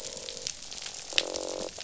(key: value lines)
label: biophony, croak
recorder: SoundTrap 500